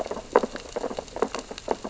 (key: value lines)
label: biophony, sea urchins (Echinidae)
recorder: SoundTrap 600 or HydroMoth